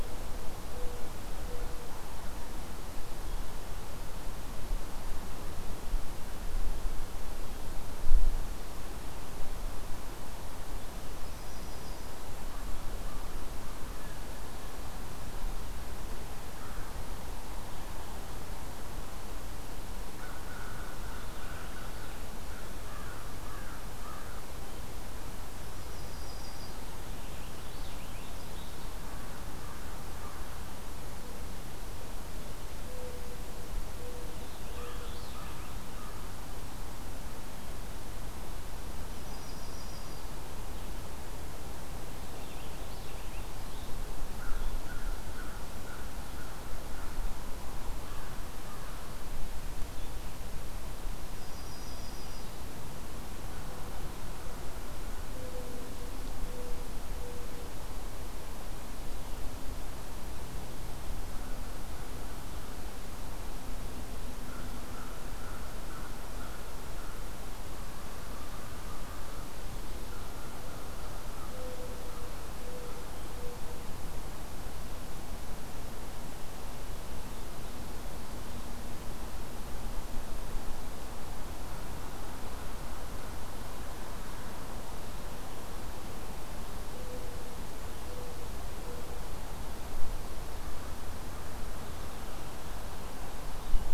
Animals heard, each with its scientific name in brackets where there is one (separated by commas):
Yellow-rumped Warbler (Setophaga coronata), Purple Finch (Haemorhous purpureus), Mourning Dove (Zenaida macroura), American Crow (Corvus brachyrhynchos)